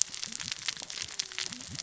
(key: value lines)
label: biophony, cascading saw
recorder: SoundTrap 600 or HydroMoth